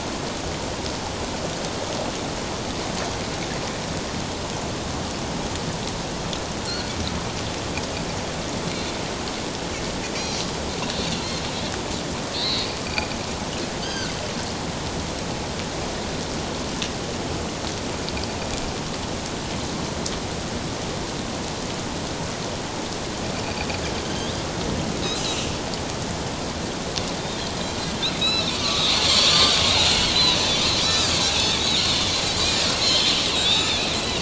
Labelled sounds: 6.6	6.9	Pacific white-sided dolphin, 3.9 to 4.5 kHz
11.1	11.4	Pacific white-sided dolphin, 4.1 to 4.3 kHz
12.3	12.7	Pacific white-sided dolphin, 3.5 to 4.7 kHz
13.8	14.1	Pacific white-sided dolphin, 1.4 to 6.5 kHz
24.0	24.4	Pacific white-sided dolphin, 3.1 to 4.0 kHz
28.2	29.6	Pacific white-sided dolphin, 1.0 to 5.4 kHz
30.1	30.4	Pacific white-sided dolphin, 3.8 to 4.2 kHz
30.8	32.0	Pacific white-sided dolphin, 3.3 to 7.2 kHz
32.8	33.8	Pacific white-sided dolphin, 2.3 to 7.3 kHz

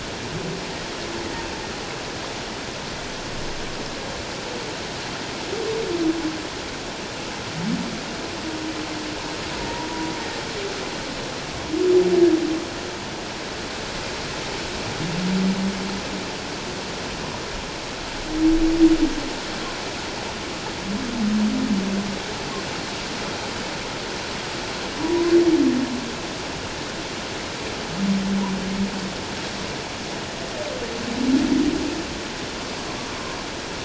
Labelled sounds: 25.0	25.3	humpback whale, 0.94 to 1.1 kHz

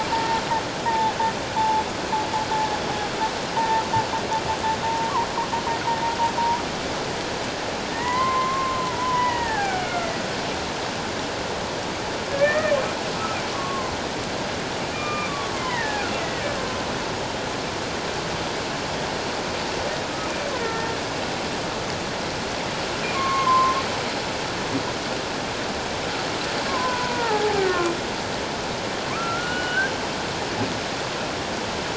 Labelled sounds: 0.9	1.1	humpback whale, 0.78 to 1.0 kHz
1.6	2.8	humpback whale, 0.81 to 3.6 kHz
3.6	3.8	humpback whale, 0.84 to 1.0 kHz
4.8	5.1	humpback whale, 0.88 to 1.0 kHz
7.9	10.2	humpback whale, 0.78 to 2.2 kHz
12.3	12.8	humpback whale, 1.6 to 2.0 kHz
13.5	13.9	humpback whale, 0.94 to 1.2 kHz
14.9	16.5	humpback whale, 0.88 to 2.5 kHz
20.6	20.9	humpback whale, 1.7 to 1.9 kHz
23.1	23.8	humpback whale, 0.97 to 1.2 kHz
26.7	27.9	humpback whale, 0.78 to 1.9 kHz
29.1	29.9	humpback whale, 0.97 to 3.0 kHz

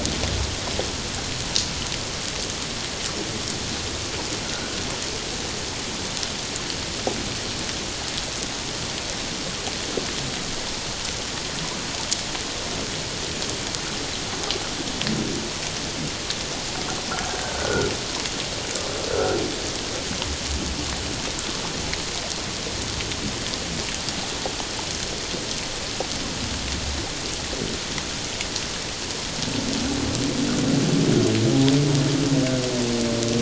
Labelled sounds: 4.5	4.8	humpback whale, 1.3 to 1.7 kHz
17.5	17.9	humpback whale, 1.3 to 1.5 kHz
19.1	19.4	humpback whale, 1.3 to 1.6 kHz

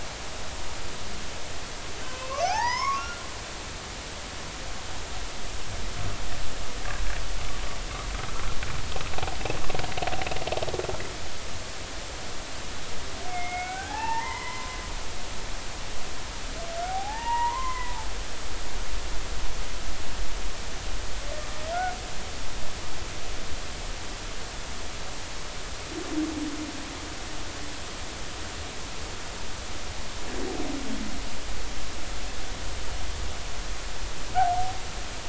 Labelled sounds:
2.0	3.2	humpback whale, 0.80 to 6.7 kHz
8.3	8.6	humpback whale, 1.3 to 1.4 kHz
13.3	14.8	humpback whale, 0.80 to 2.8 kHz
16.9	17.9	humpback whale, 0.80 to 2.9 kHz

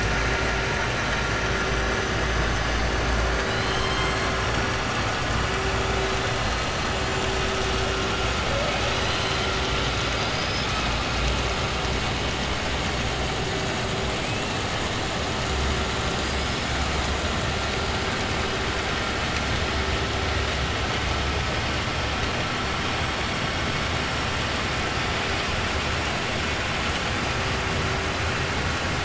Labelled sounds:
3.4	4.3	killer whale, 1.1 to 6.1 kHz
10.0	10.8	killer whale, 3.9 to 5.8 kHz
16.2	16.8	killer whale, 4.8 to 5.4 kHz

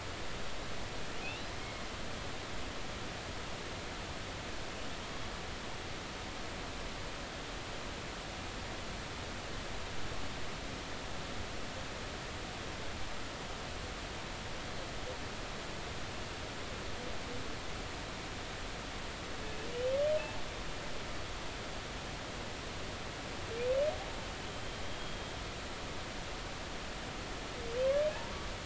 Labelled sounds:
1.2	1.5	humpback whale, 2.4 to 3.0 kHz
24.8	25.3	humpback whale, 3.2 to 3.3 kHz

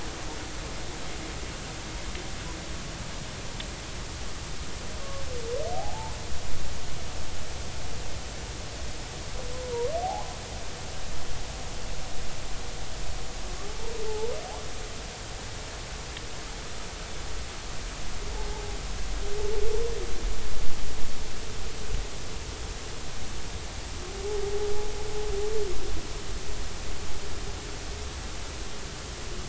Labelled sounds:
5.7	6.2	humpback whale, 0.80 to 1.1 kHz
10.0	10.3	humpback whale, 0.80 to 0.93 kHz
14.1	14.4	humpback whale, 0.80 to 1.0 kHz

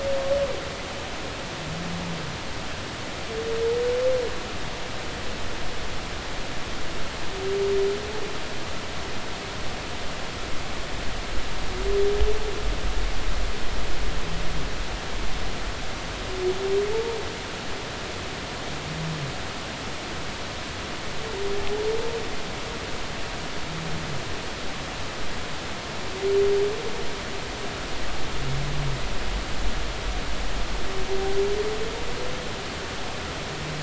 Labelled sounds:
16.9	17.2	humpback whale, 0.83 to 0.96 kHz

